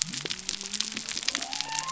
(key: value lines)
label: biophony
recorder: SoundTrap 300